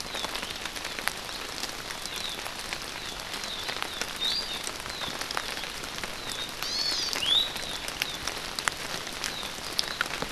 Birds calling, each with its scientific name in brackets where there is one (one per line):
Hawaii Amakihi (Chlorodrepanis virens)
Iiwi (Drepanis coccinea)